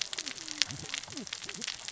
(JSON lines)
{"label": "biophony, cascading saw", "recorder": "SoundTrap 600 or HydroMoth"}